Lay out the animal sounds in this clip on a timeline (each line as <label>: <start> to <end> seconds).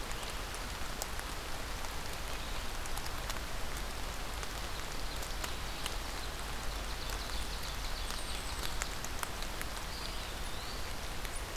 Ovenbird (Seiurus aurocapilla): 4.5 to 8.8 seconds
unidentified call: 7.9 to 8.7 seconds
Eastern Wood-Pewee (Contopus virens): 9.8 to 10.9 seconds